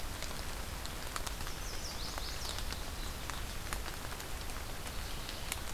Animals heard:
Chestnut-sided Warbler (Setophaga pensylvanica), Mourning Warbler (Geothlypis philadelphia)

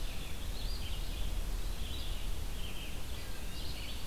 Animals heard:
Red-eyed Vireo (Vireo olivaceus), Eastern Wood-Pewee (Contopus virens)

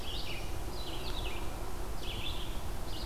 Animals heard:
Black-throated Blue Warbler (Setophaga caerulescens), Red-eyed Vireo (Vireo olivaceus)

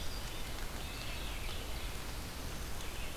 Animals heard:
American Robin (Turdus migratorius), Red-eyed Vireo (Vireo olivaceus)

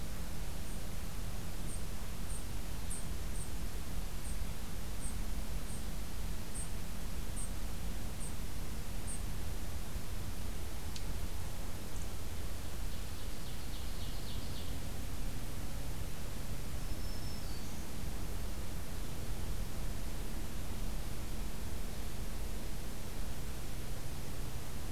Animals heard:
Ovenbird (Seiurus aurocapilla), Dark-eyed Junco (Junco hyemalis), Black-throated Green Warbler (Setophaga virens)

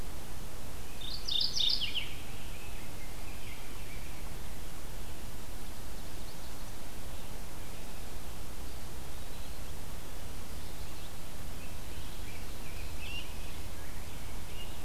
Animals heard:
Mourning Warbler (Geothlypis philadelphia), Eastern Wood-Pewee (Contopus virens), Rose-breasted Grosbeak (Pheucticus ludovicianus)

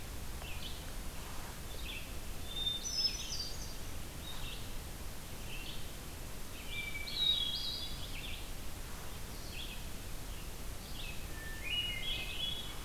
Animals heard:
Hermit Thrush (Catharus guttatus), Red-eyed Vireo (Vireo olivaceus)

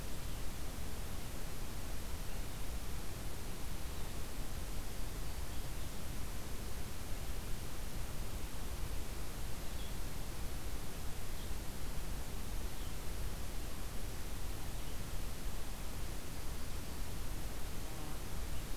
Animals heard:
Red-eyed Vireo (Vireo olivaceus)

